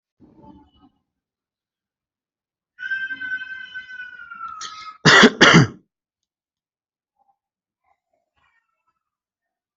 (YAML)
expert_labels:
- quality: ok
  cough_type: dry
  dyspnea: false
  wheezing: false
  stridor: false
  choking: false
  congestion: false
  nothing: true
  diagnosis: lower respiratory tract infection
  severity: mild